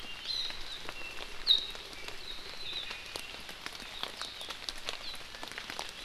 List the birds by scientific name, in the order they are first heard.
Chlorodrepanis virens